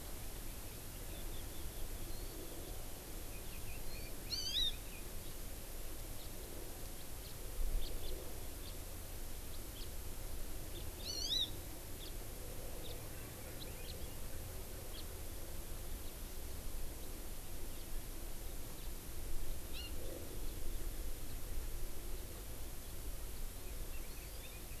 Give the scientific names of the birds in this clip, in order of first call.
Garrulax canorus, Chlorodrepanis virens, Haemorhous mexicanus, Pternistis erckelii